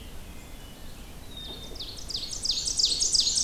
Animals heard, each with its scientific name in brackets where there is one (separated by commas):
Black-and-white Warbler (Mniotilta varia), Black-capped Chickadee (Poecile atricapillus), Ovenbird (Seiurus aurocapilla), Wood Thrush (Hylocichla mustelina)